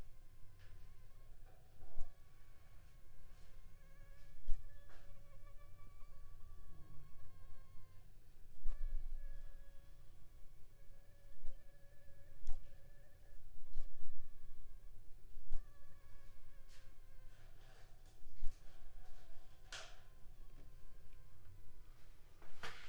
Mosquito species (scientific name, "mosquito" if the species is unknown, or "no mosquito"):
Anopheles funestus s.l.